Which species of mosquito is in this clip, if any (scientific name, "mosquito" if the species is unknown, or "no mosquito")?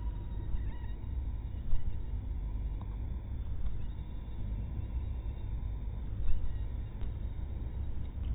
mosquito